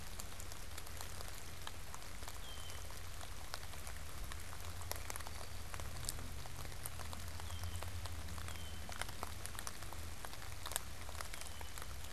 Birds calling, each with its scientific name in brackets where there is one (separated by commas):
Red-winged Blackbird (Agelaius phoeniceus)